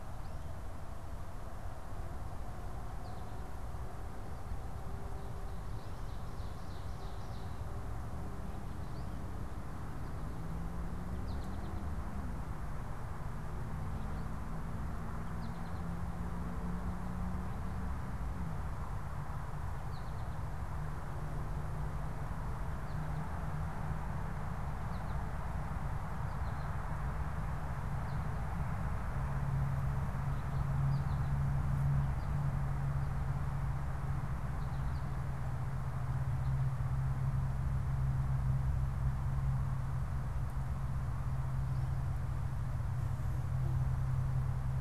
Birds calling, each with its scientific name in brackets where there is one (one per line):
Ovenbird (Seiurus aurocapilla)
American Goldfinch (Spinus tristis)